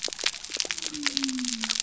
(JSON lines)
{"label": "biophony", "recorder": "SoundTrap 300"}